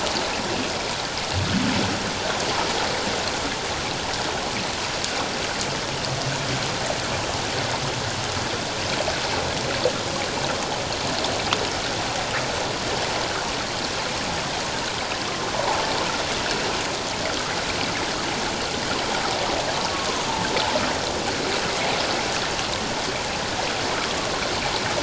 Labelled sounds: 15.6	15.8	humpback whale, 0.78 to 1.0 kHz
19.9	20.2	humpback whale, 0.94 to 1.2 kHz

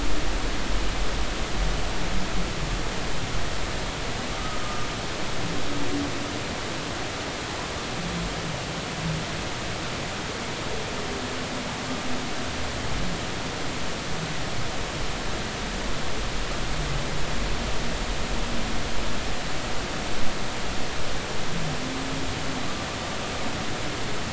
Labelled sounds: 4.4	4.9	humpback whale, 1.2 to 1.3 kHz

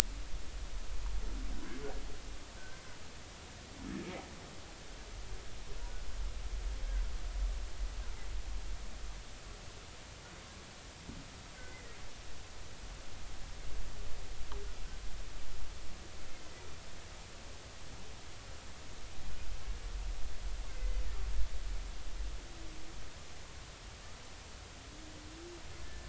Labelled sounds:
2.6	2.8	humpback whale, 1.5 to 1.6 kHz
11.6	11.9	humpback whale, 1.9 to 2.1 kHz
20.7	21.0	humpback whale, 2.0 to 2.1 kHz
25.8	26.0	humpback whale, 1.7 to 1.8 kHz

